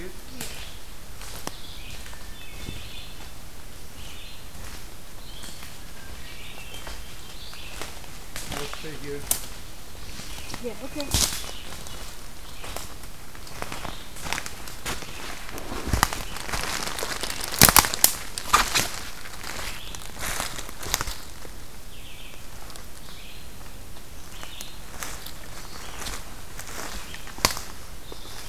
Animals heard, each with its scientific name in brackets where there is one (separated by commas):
Hermit Thrush (Catharus guttatus), Red-eyed Vireo (Vireo olivaceus)